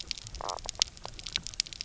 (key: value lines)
label: biophony, knock croak
recorder: SoundTrap 300